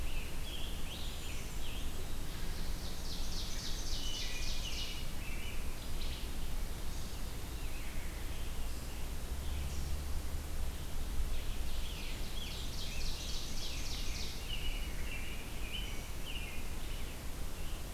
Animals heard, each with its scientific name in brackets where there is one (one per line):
Rose-breasted Grosbeak (Pheucticus ludovicianus)
Ovenbird (Seiurus aurocapilla)
American Robin (Turdus migratorius)
Red-eyed Vireo (Vireo olivaceus)
Wood Thrush (Hylocichla mustelina)
Scarlet Tanager (Piranga olivacea)